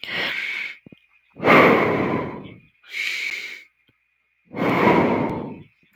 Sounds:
Sigh